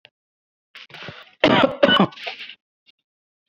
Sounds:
Cough